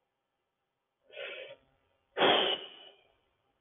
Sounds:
Sigh